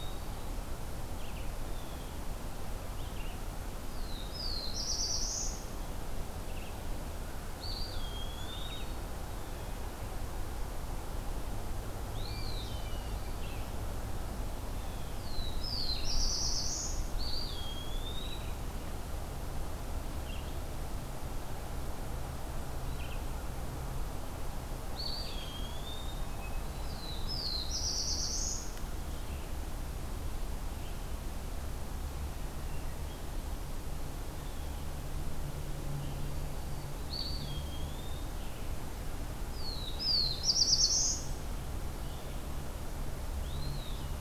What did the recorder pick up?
Red-eyed Vireo, Blue Jay, Black-throated Blue Warbler, Eastern Wood-Pewee, Hermit Thrush